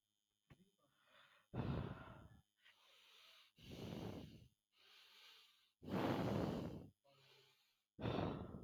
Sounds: Sigh